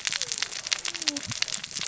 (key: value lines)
label: biophony, cascading saw
recorder: SoundTrap 600 or HydroMoth